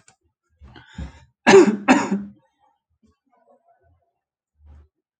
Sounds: Cough